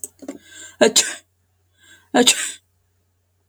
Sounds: Sneeze